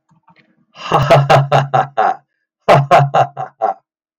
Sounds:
Laughter